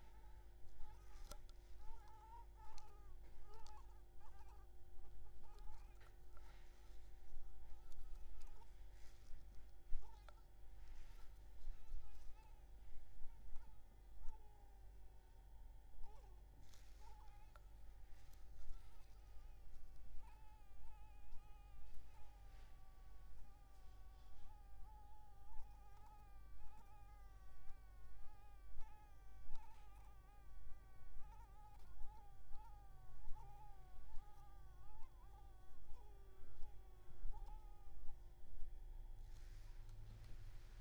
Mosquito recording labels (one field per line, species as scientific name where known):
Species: Anopheles maculipalpis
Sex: female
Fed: blood-fed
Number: one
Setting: cup